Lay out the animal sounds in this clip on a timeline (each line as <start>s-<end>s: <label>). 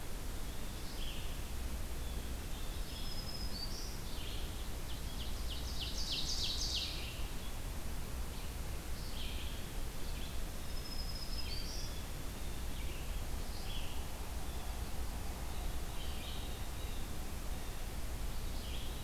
0.0s-19.0s: Red-eyed Vireo (Vireo olivaceus)
2.7s-3.9s: Black-throated Green Warbler (Setophaga virens)
4.6s-7.1s: Ovenbird (Seiurus aurocapilla)
10.5s-12.1s: Black-throated Green Warbler (Setophaga virens)